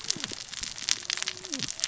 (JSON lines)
{"label": "biophony, cascading saw", "recorder": "SoundTrap 600 or HydroMoth"}